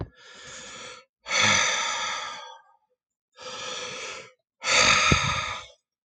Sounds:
Sigh